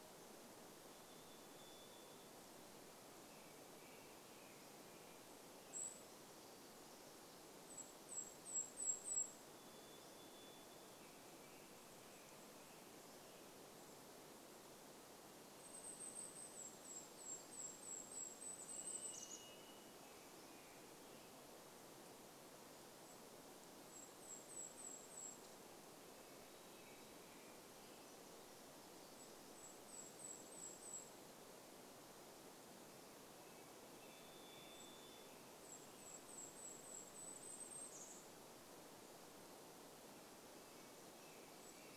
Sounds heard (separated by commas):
Varied Thrush song, Golden-crowned Kinglet song, American Robin song, Golden-crowned Kinglet call